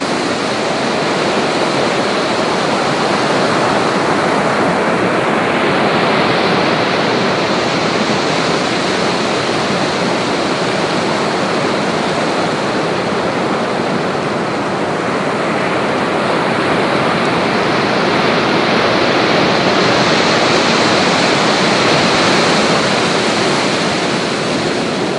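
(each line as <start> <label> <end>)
0.0 Static noise. 25.2
0.0 Waves crashing on the shore. 25.2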